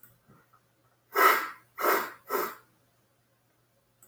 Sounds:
Sniff